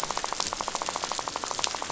{"label": "biophony, rattle", "recorder": "SoundTrap 500"}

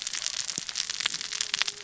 {"label": "biophony, cascading saw", "recorder": "SoundTrap 600 or HydroMoth"}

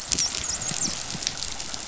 {"label": "biophony, dolphin", "recorder": "SoundTrap 500"}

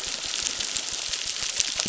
{"label": "biophony, crackle", "recorder": "SoundTrap 600"}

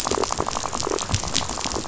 {"label": "biophony, rattle", "recorder": "SoundTrap 500"}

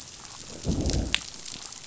{"label": "biophony, growl", "recorder": "SoundTrap 500"}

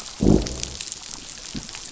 {"label": "biophony, growl", "recorder": "SoundTrap 500"}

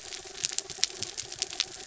{"label": "anthrophony, mechanical", "recorder": "SoundTrap 300"}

